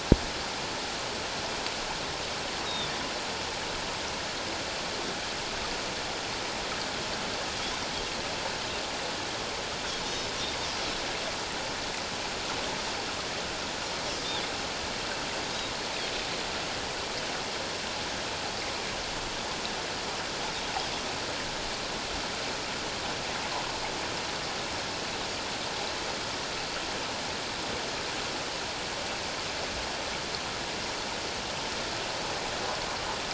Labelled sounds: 2.7	2.9	Pacific white-sided dolphin, 3.4 to 3.9 kHz

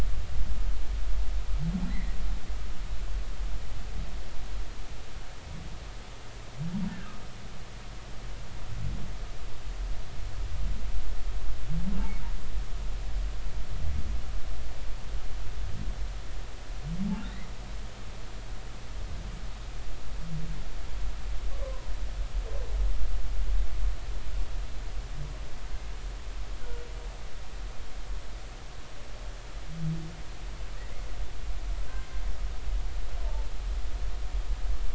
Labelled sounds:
1.9	2.2	humpback whale, 1.9 to 2.2 kHz
21.6	21.9	humpback whale, 0.90 to 1.2 kHz
26.6	26.9	humpback whale, 1.3 to 1.5 kHz

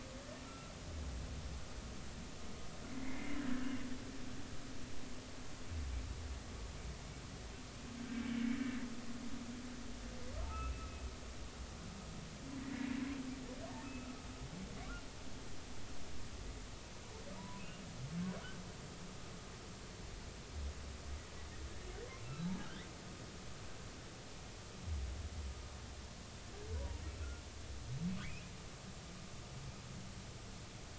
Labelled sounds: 0.4	0.7	humpback whale, 1.3 to 1.4 kHz
2.9	3.9	humpback whale, 1.5 to 2.9 kHz
8.2	8.6	humpback whale, 2.1 to 2.3 kHz
10.5	10.9	humpback whale, 1.2 to 2.8 kHz
12.6	12.9	humpback whale, 1.9 to 2.0 kHz
13.8	14.1	humpback whale, 2.5 to 2.7 kHz
17.4	17.6	humpback whale, 0.90 to 1.1 kHz
22.6	22.8	humpback whale, 1.3 to 1.8 kHz
26.8	27.4	humpback whale, 0.90 to 1.5 kHz
28.2	28.5	humpback whale, 1.7 to 2.8 kHz

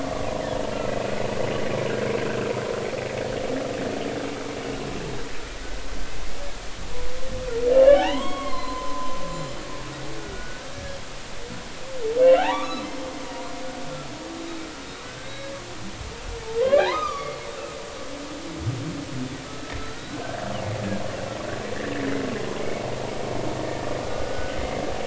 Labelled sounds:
7.7	9.5	humpback whale, 0.80 to 7.2 kHz
10.2	11.0	humpback whale, 1.3 to 1.7 kHz
12.4	12.9	humpback whale, 0.80 to 4.1 kHz
15.0	15.5	humpback whale, 1.4 to 3.9 kHz
16.6	17.4	humpback whale, 0.80 to 5.0 kHz
19.5	20.2	humpback whale, 1.2 to 1.5 kHz
22.6	22.8	humpback whale, 2.1 to 2.3 kHz
24.0	24.6	humpback whale, 1.4 to 1.6 kHz

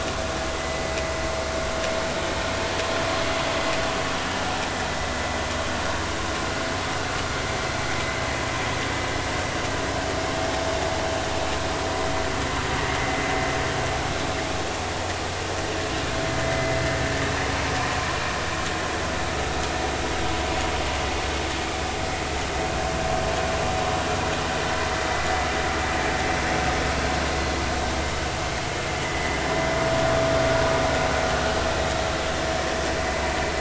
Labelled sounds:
0.5	0.8	vessel noise, 1.95 to 2.05 kHz
16.4	16.8	vessel noise, 2.0 to 2.1 kHz
29.1	29.4	vessel noise, 2.0 to 2.2 kHz

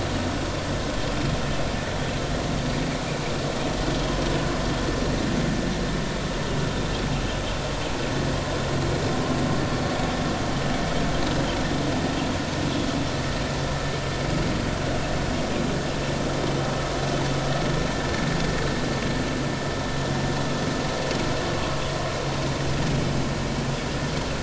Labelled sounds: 21.4	21.8	vessel noise, 1.0 to 1.2 kHz

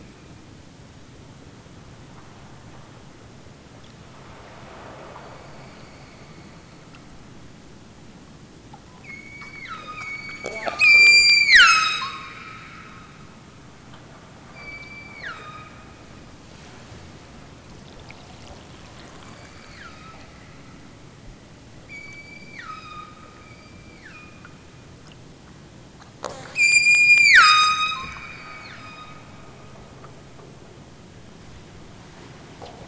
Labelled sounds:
9.0	12.4	killer whale, southern Alaska resident, 0.78 to 8.0 kHz
14.4	15.8	killer whale, southern Alaska resident, 0.87 to 5.4 kHz
19.2	20.2	killer whale, southern Alaska resident, 0.92 to 5.2 kHz
21.8	24.6	killer whale, southern Alaska resident, 0.78 to 8.0 kHz
26.5	29.3	killer whale, southern Alaska resident, 0.73 to 8.0 kHz

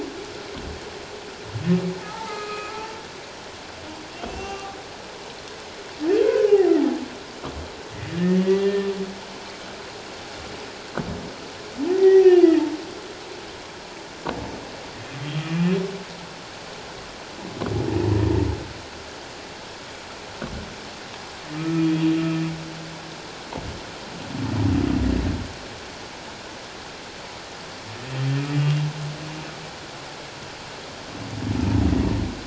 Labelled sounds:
2.0	2.9	humpback whale, 0.81 to 4.2 kHz
4.2	4.8	humpback whale, 1.1 to 2.8 kHz
6.2	6.7	humpback whale, 0.78 to 1.6 kHz
8.1	8.9	humpback whale, 1.7 to 2.0 kHz
11.9	12.5	humpback whale, 0.78 to 3.0 kHz
21.5	21.8	humpback whale, 1.2 to 1.3 kHz
31.9	32.1	humpback whale, 1.8 to 2.0 kHz

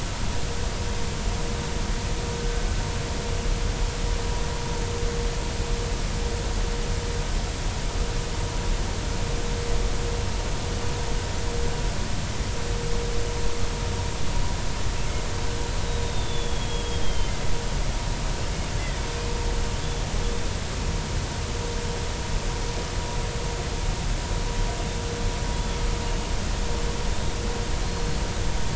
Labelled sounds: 16.0	17.3	killer whale, Bigg's (transient), 3.0 to 3.7 kHz
25.5	25.8	killer whale, Bigg's (transient), 3.3 to 3.5 kHz
27.8	28.2	killer whale, Bigg's (transient), 4.0 to 4.4 kHz

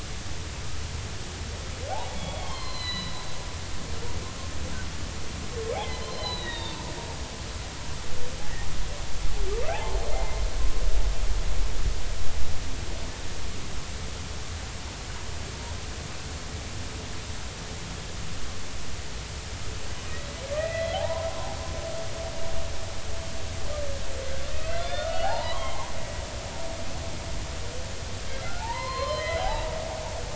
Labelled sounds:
1.9	3.2	humpback whale, 0.80 to 4.3 kHz
6.0	6.8	humpback whale, 1.8 to 4.2 kHz
9.7	10.4	humpback whale, 0.80 to 2.1 kHz
20.5	21.6	humpback whale, 0.80 to 2.1 kHz
24.5	25.9	humpback whale, 0.80 to 4.5 kHz
28.6	29.7	humpback whale, 0.80 to 5.1 kHz

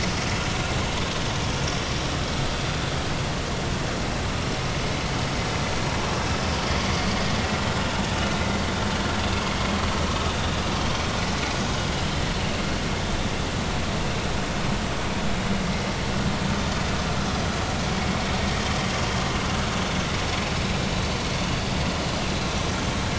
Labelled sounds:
6.5	6.8	vessel noise, 4.6 to 4.7 kHz

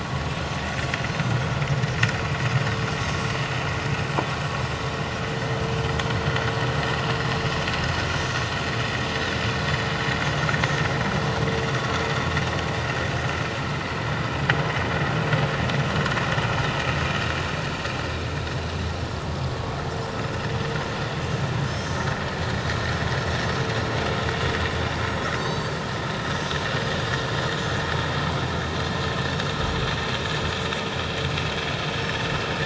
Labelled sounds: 21.7	22.0	Pacific white-sided dolphin, 5.0 to 5.4 kHz
25.4	25.7	Pacific white-sided dolphin, 4.4 to 7.6 kHz

